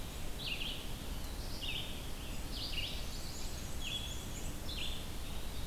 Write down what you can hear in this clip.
Red-eyed Vireo, Black-throated Blue Warbler, Chestnut-sided Warbler, Black-and-white Warbler